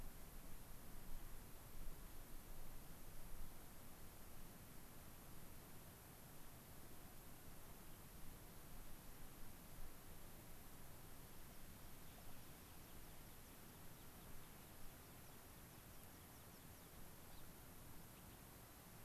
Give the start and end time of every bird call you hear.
[12.22, 16.82] American Pipit (Anthus rubescens)
[17.12, 17.52] Gray-crowned Rosy-Finch (Leucosticte tephrocotis)

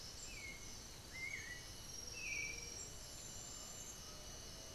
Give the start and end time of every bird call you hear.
[0.00, 4.74] Black-billed Thrush (Turdus ignobilis)
[3.41, 4.74] Undulated Tinamou (Crypturellus undulatus)

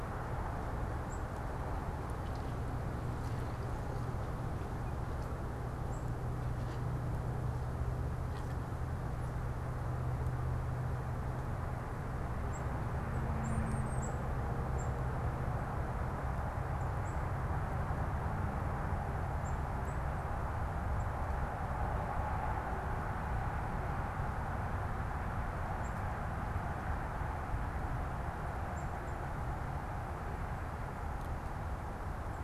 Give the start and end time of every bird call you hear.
[0.00, 6.21] Black-capped Chickadee (Poecile atricapillus)
[12.41, 29.41] Black-capped Chickadee (Poecile atricapillus)
[13.21, 14.21] unidentified bird

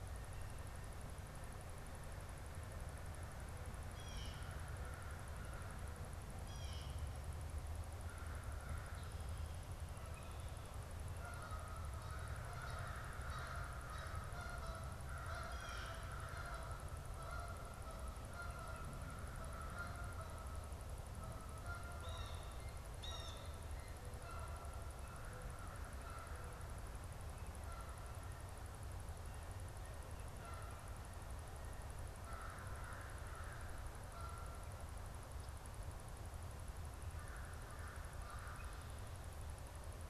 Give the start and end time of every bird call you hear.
[3.75, 7.15] Blue Jay (Cyanocitta cristata)
[7.95, 9.25] American Crow (Corvus brachyrhynchos)
[11.05, 26.75] Canada Goose (Branta canadensis)
[11.75, 16.85] American Crow (Corvus brachyrhynchos)
[15.25, 16.25] Blue Jay (Cyanocitta cristata)
[18.65, 20.55] American Crow (Corvus brachyrhynchos)
[21.85, 23.75] Blue Jay (Cyanocitta cristata)
[27.55, 34.85] Canada Goose (Branta canadensis)
[32.15, 34.15] American Crow (Corvus brachyrhynchos)
[36.95, 39.05] American Crow (Corvus brachyrhynchos)

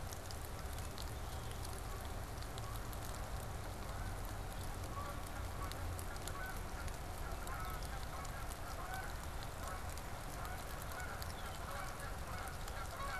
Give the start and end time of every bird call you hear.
[0.00, 13.19] Canada Goose (Branta canadensis)

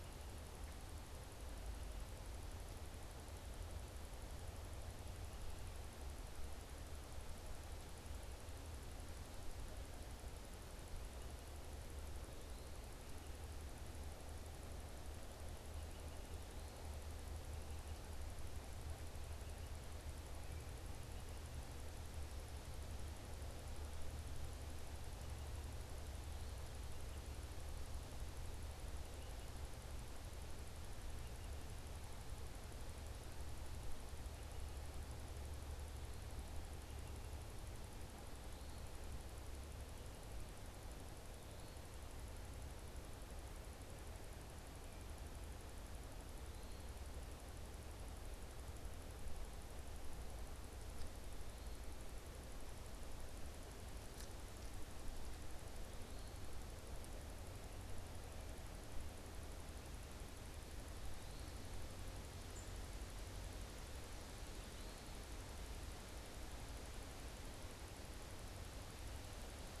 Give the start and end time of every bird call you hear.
[62.50, 62.80] unidentified bird
[64.30, 65.20] Eastern Wood-Pewee (Contopus virens)

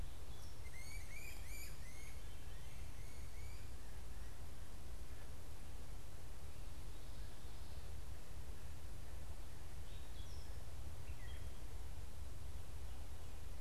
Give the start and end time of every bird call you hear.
[0.00, 4.40] Great Crested Flycatcher (Myiarchus crinitus)
[9.60, 11.70] Gray Catbird (Dumetella carolinensis)

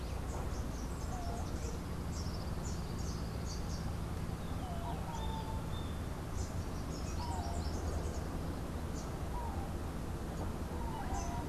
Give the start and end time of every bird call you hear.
[0.00, 3.90] Rufous-capped Warbler (Basileuterus rufifrons)
[6.00, 11.40] Rufous-capped Warbler (Basileuterus rufifrons)

